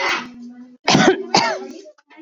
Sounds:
Cough